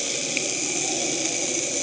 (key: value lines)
label: anthrophony, boat engine
recorder: HydroMoth